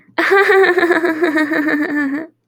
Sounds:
Laughter